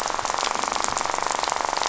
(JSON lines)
{"label": "biophony, rattle", "recorder": "SoundTrap 500"}